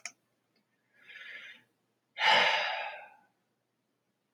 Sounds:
Sigh